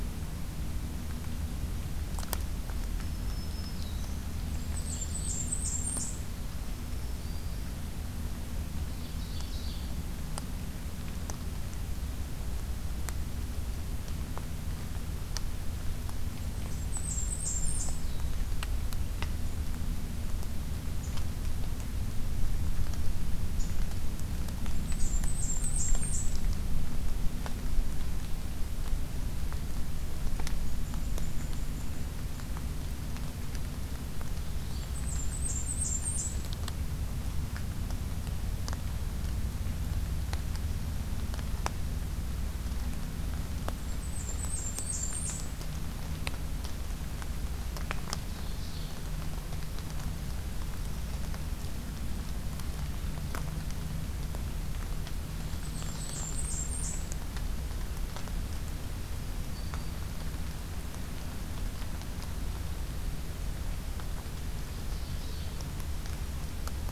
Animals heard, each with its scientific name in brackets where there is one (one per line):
Blackburnian Warbler (Setophaga fusca)
Ovenbird (Seiurus aurocapilla)
unidentified call
Black-throated Green Warbler (Setophaga virens)
Golden-crowned Kinglet (Regulus satrapa)